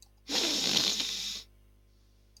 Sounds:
Sniff